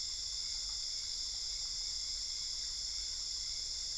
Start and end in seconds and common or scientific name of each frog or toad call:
none